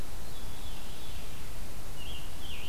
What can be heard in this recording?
Veery, Scarlet Tanager